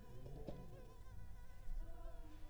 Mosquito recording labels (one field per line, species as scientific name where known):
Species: Anopheles arabiensis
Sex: female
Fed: unfed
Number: one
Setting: cup